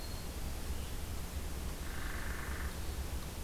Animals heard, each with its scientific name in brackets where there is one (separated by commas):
Hairy Woodpecker (Dryobates villosus), Red-eyed Vireo (Vireo olivaceus)